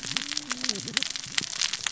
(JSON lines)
{"label": "biophony, cascading saw", "recorder": "SoundTrap 600 or HydroMoth"}